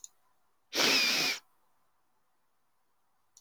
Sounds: Sniff